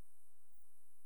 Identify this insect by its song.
Rhacocleis germanica, an orthopteran